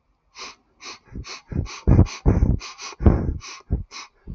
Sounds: Sniff